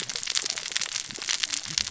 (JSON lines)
{"label": "biophony, cascading saw", "recorder": "SoundTrap 600 or HydroMoth"}